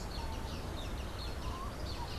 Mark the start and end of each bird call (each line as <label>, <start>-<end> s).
Social Flycatcher (Myiozetetes similis), 0.0-2.2 s